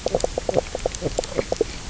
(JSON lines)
{"label": "biophony, knock croak", "recorder": "SoundTrap 300"}